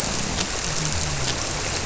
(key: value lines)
label: biophony
recorder: SoundTrap 300